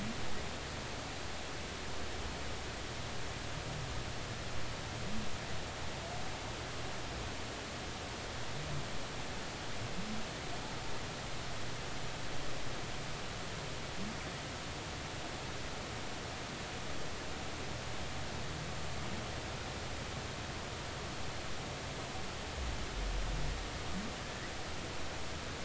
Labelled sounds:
24.2	24.5	humpback whale, 1.6 to 2.0 kHz

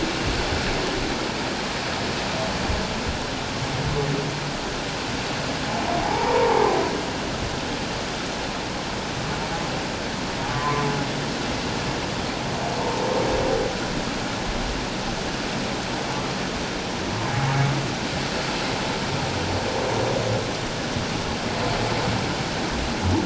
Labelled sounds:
6.0	6.8	humpback whale, 0.78 to 1.1 kHz
10.5	10.9	humpback whale, 0.97 to 1.2 kHz
12.8	13.0	humpback whale, 0.84 to 1.1 kHz

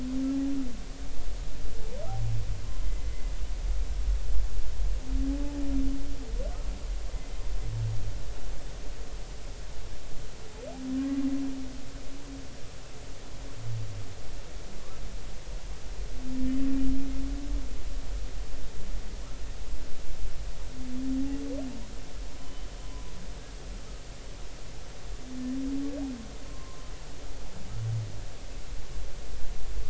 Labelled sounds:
2.8	3.1	humpback whale, 2.0 to 2.1 kHz
10.9	11.2	humpback whale, 0.99 to 1.2 kHz
22.3	23.1	humpback whale, 0.90 to 3.1 kHz
26.5	26.8	humpback whale, 0.96 to 1.1 kHz

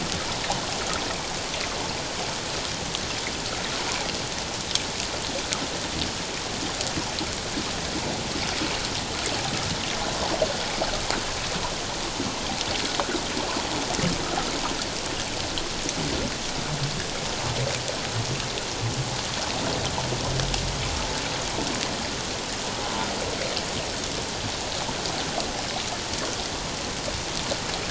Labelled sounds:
22.8	23.1	humpback whale, 0.84 to 1.0 kHz

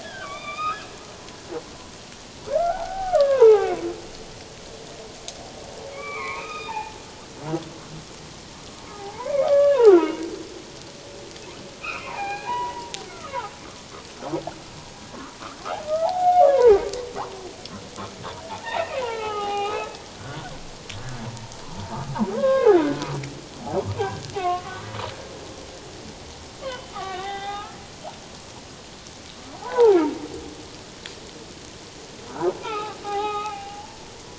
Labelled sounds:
0.0	0.9	humpback whale, 1.1 to 5.1 kHz
2.6	3.7	humpback whale, 0.78 to 1.9 kHz
5.9	7.0	humpback whale, 0.78 to 3.8 kHz
8.9	10.1	humpback whale, 0.78 to 2.4 kHz
11.8	13.5	humpback whale, 0.78 to 4.2 kHz
16.0	16.8	humpback whale, 0.78 to 1.8 kHz
18.5	20.5	humpback whale, 0.78 to 4.0 kHz
21.0	21.3	humpback whale, 1.5 to 1.8 kHz
22.3	22.7	humpback whale, 0.94 to 1.7 kHz
24.4	24.9	humpback whale, 1.0 to 1.6 kHz
26.6	27.8	humpback whale, 0.78 to 3.8 kHz
29.6	30.0	humpback whale, 0.78 to 1.6 kHz
32.3	33.8	humpback whale, 0.78 to 3.9 kHz

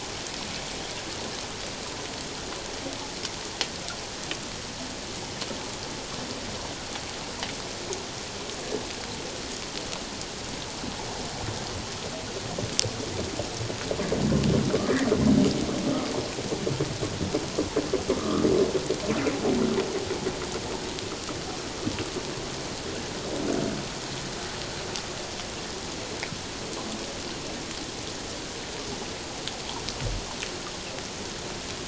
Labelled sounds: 18.1	18.5	humpback whale, 1.0 to 1.4 kHz

